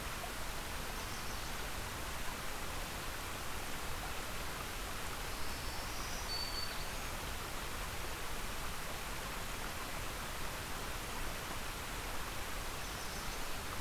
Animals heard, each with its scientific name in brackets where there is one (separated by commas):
Black-throated Green Warbler (Setophaga virens), Yellow Warbler (Setophaga petechia)